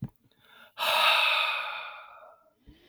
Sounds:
Sigh